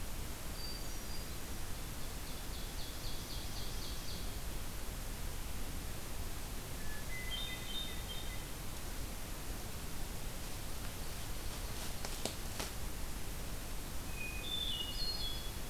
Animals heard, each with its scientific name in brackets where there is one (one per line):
Hermit Thrush (Catharus guttatus)
Ovenbird (Seiurus aurocapilla)